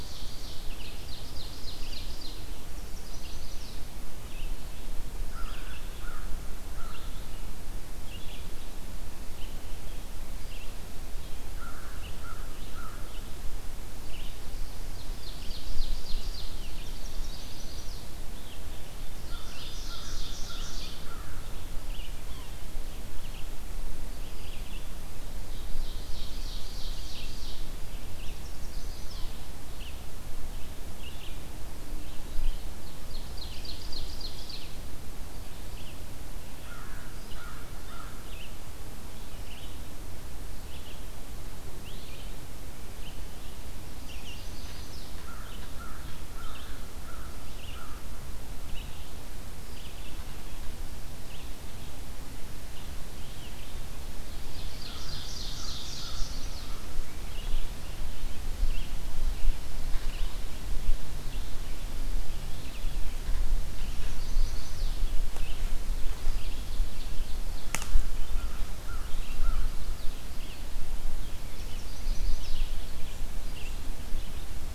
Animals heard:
Red-eyed Vireo (Vireo olivaceus)
Ovenbird (Seiurus aurocapilla)
Chestnut-sided Warbler (Setophaga pensylvanica)
American Crow (Corvus brachyrhynchos)

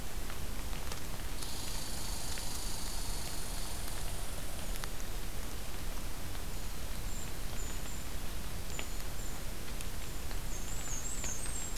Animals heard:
Black-and-white Warbler (Mniotilta varia)
Red Squirrel (Tamiasciurus hudsonicus)
Brown Creeper (Certhia americana)

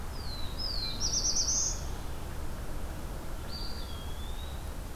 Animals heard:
Eastern Wood-Pewee (Contopus virens)
Black-throated Blue Warbler (Setophaga caerulescens)

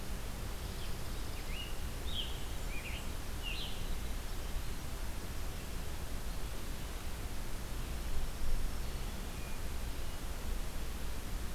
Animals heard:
Blackburnian Warbler (Setophaga fusca)
Scarlet Tanager (Piranga olivacea)
Black-throated Green Warbler (Setophaga virens)

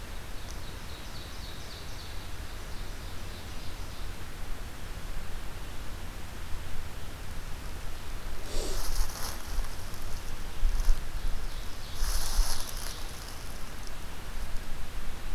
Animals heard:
Ovenbird (Seiurus aurocapilla)

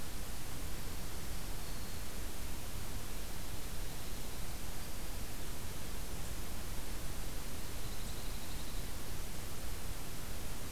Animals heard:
Dark-eyed Junco (Junco hyemalis)
Black-throated Green Warbler (Setophaga virens)

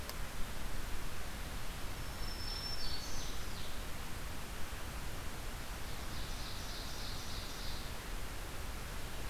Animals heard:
Ovenbird (Seiurus aurocapilla)
Black-throated Green Warbler (Setophaga virens)

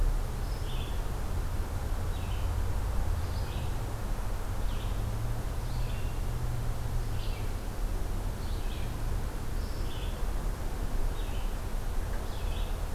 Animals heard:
Red-eyed Vireo (Vireo olivaceus)

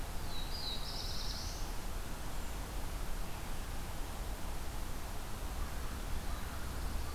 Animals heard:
Black-throated Blue Warbler (Setophaga caerulescens)

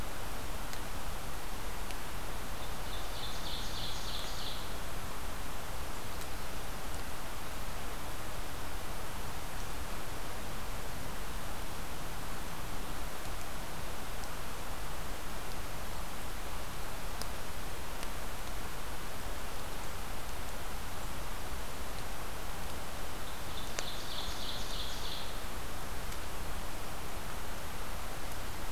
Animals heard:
Ovenbird (Seiurus aurocapilla)

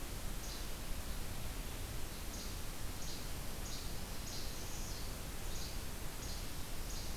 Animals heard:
Least Flycatcher (Empidonax minimus)

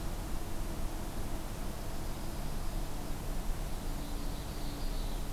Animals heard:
Dark-eyed Junco (Junco hyemalis)
Ovenbird (Seiurus aurocapilla)

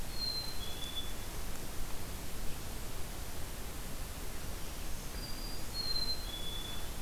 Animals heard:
Black-capped Chickadee (Poecile atricapillus)

